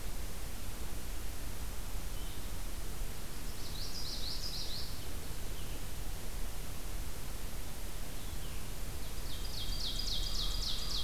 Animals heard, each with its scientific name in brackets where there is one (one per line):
Common Yellowthroat (Geothlypis trichas)
Blue-headed Vireo (Vireo solitarius)
American Crow (Corvus brachyrhynchos)
Ovenbird (Seiurus aurocapilla)